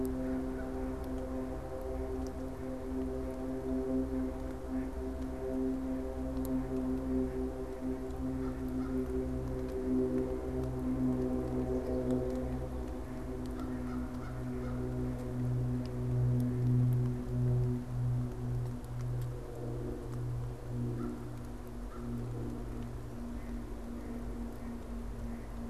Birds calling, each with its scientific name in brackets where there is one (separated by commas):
Mallard (Anas platyrhynchos), American Crow (Corvus brachyrhynchos)